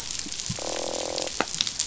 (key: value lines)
label: biophony, croak
recorder: SoundTrap 500